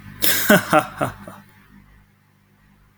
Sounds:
Laughter